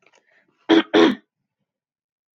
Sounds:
Throat clearing